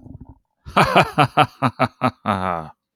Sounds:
Laughter